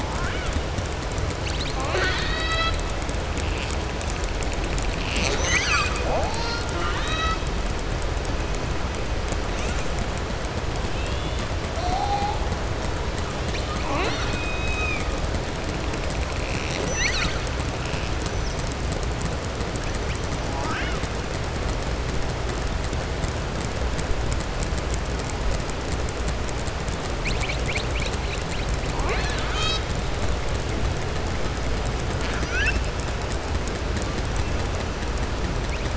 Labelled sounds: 0.0	0.5	killer whale, southern resident, 0.85 to 3.6 kHz
1.7	2.8	killer whale, southern resident, 0.47 to 5.2 kHz
6.6	7.4	killer whale, southern resident, 0.40 to 7.9 kHz
10.9	11.4	killer whale, southern resident, 2.6 to 3.6 kHz
16.4	17.6	killer whale, southern resident, 0.58 to 7.9 kHz

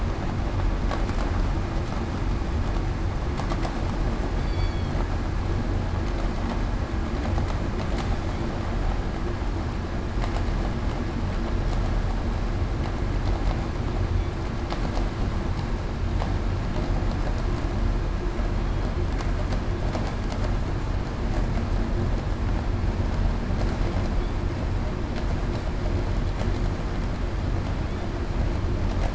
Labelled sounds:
4.4	4.7	killer whale, southern resident, 3.4 to 3.5 kHz

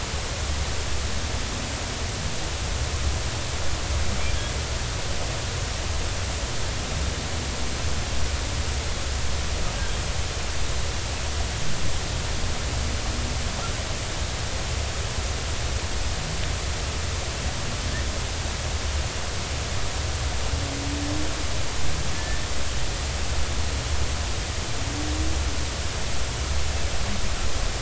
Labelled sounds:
22.1	22.5	humpback whale, 1.7 to 1.9 kHz

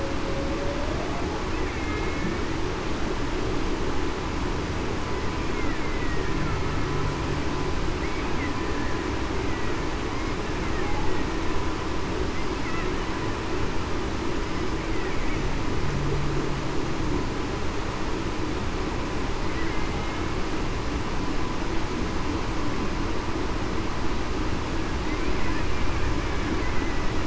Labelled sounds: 1.7	2.4	killer whale, Bigg's (transient), 2.1 to 2.3 kHz
5.8	6.4	killer whale, Bigg's (transient), 1.8 to 2.2 kHz

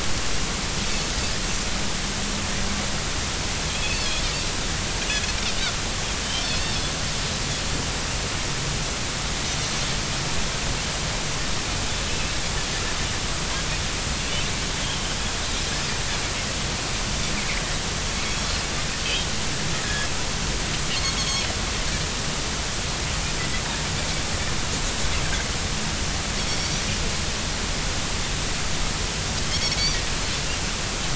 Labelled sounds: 3.7	4.0	Pacific white-sided dolphin, 2.4 to 2.7 kHz
12.1	12.3	Pacific white-sided dolphin, 2.5 to 2.7 kHz
14.8	15.1	Pacific white-sided dolphin, 3.0 to 3.4 kHz
19.8	20.1	Pacific white-sided dolphin, 1.6 to 1.8 kHz
21.2	21.4	Pacific white-sided dolphin, 3.2 to 3.4 kHz

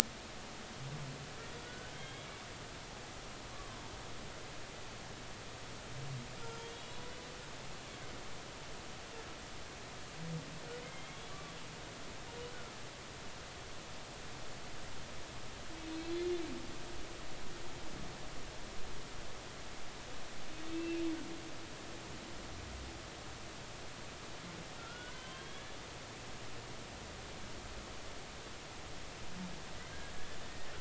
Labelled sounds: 1.6	2.3	humpback whale, 1.4 to 3.4 kHz
6.7	7.1	humpback whale, 3.3 to 3.4 kHz
10.8	11.5	humpback whale, 1.1 to 3.2 kHz
20.7	21.0	humpback whale, 2.6 to 2.9 kHz
24.8	25.7	humpback whale, 0.96 to 3.4 kHz

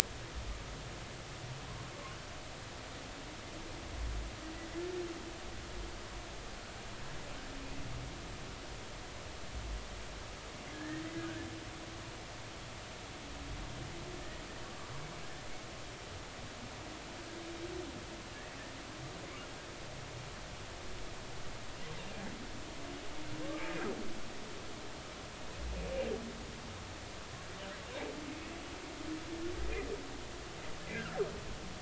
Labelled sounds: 10.7	11.0	humpback whale, 1.6 to 1.9 kHz
30.9	31.2	humpback whale, 1.3 to 1.8 kHz

